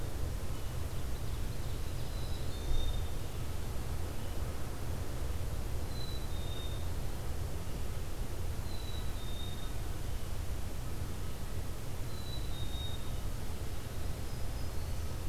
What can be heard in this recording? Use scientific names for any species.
Seiurus aurocapilla, Poecile atricapillus, Setophaga virens